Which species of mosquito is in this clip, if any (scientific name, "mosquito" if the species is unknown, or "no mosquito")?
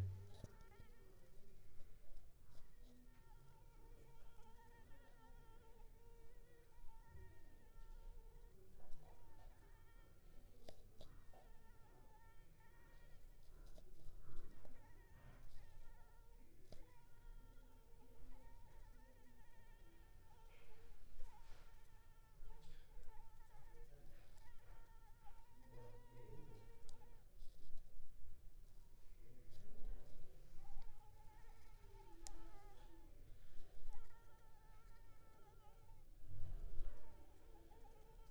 Anopheles arabiensis